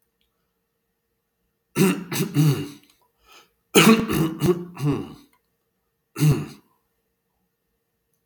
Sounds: Throat clearing